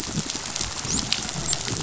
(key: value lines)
label: biophony, dolphin
recorder: SoundTrap 500